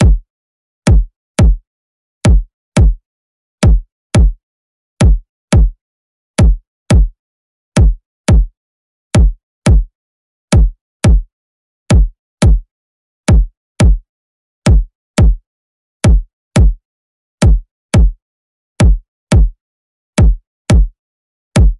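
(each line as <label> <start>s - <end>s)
A single drum hit. 0.0s - 0.4s
A double drum hit. 0.8s - 21.0s
A single drum hit. 21.4s - 21.8s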